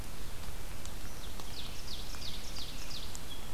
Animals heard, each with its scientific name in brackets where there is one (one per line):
Ovenbird (Seiurus aurocapilla)